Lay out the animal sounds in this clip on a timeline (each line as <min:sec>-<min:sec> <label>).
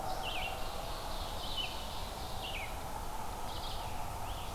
0:00.0-0:04.5 Red-eyed Vireo (Vireo olivaceus)
0:00.4-0:02.5 Ovenbird (Seiurus aurocapilla)
0:03.6-0:04.5 Scarlet Tanager (Piranga olivacea)